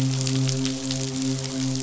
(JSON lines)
{"label": "biophony, midshipman", "recorder": "SoundTrap 500"}